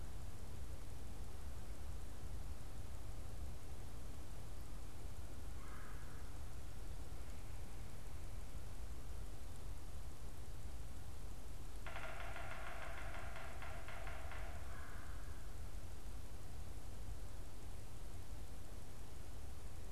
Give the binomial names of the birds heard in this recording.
Melanerpes carolinus, Sphyrapicus varius